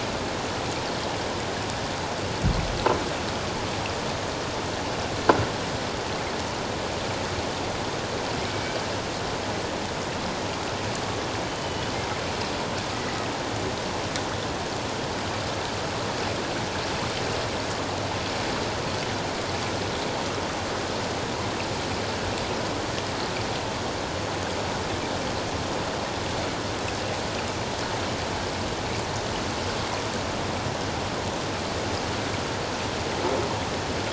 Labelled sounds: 11.5	11.9	killer whale, 2.9 to 3.1 kHz
12.9	13.3	killer whale, 1.8 to 2.1 kHz

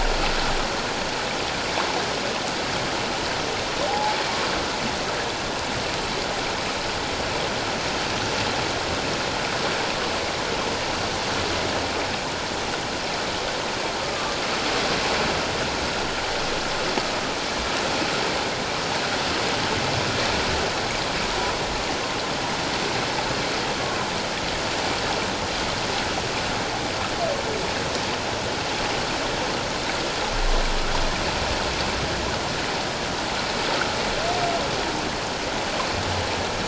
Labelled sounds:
3.9	4.2	humpback whale, 0.78 to 0.91 kHz
14.1	14.4	humpback whale, 1.1 to 1.2 kHz

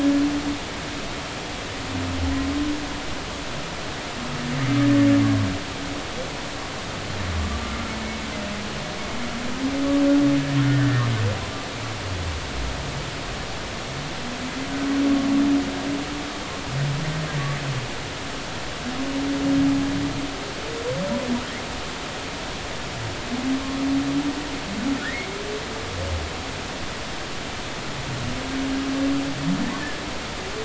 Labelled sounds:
10.6	11.1	humpback whale, 1.6 to 1.9 kHz
25.0	25.3	humpback whale, 1.6 to 2.3 kHz

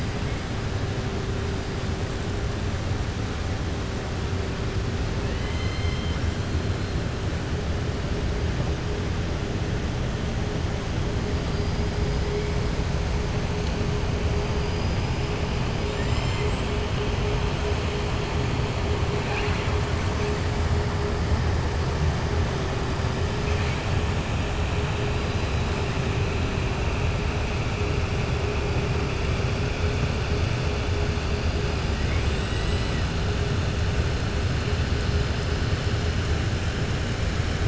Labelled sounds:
5.2	6.2	killer whale, southern resident, 1.8 to 5.3 kHz
14.5	15.0	killer whale, southern resident, 4.6 to 5.7 kHz

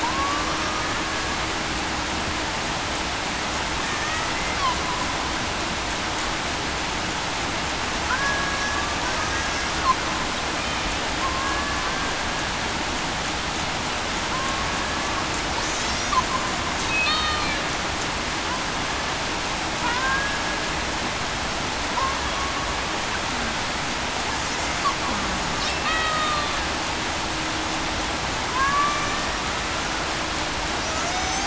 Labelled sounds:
0.0	0.4	killer whale, Bigg's (transient), 0.89 to 1.2 kHz
3.8	4.3	killer whale, Bigg's (transient), 1.7 to 2.0 kHz
8.1	8.6	killer whale, Bigg's (transient), 1.5 to 1.7 kHz
9.4	9.7	killer whale, Bigg's (transient), 5.1 to 5.7 kHz
11.2	11.6	killer whale, Bigg's (transient), 1.0 to 1.1 kHz
17.0	17.4	killer whale, Bigg's (transient), 3.5 to 3.8 kHz
19.8	20.2	killer whale, Bigg's (transient), 0.91 to 1.1 kHz
25.8	26.2	killer whale, Bigg's (transient), 1.8 to 1.9 kHz
28.5	29.1	killer whale, Bigg's (transient), 0.98 to 1.8 kHz
31.0	31.4	killer whale, Bigg's (transient), 0.68 to 6.4 kHz

